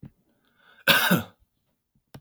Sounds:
Cough